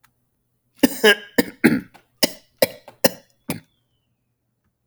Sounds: Cough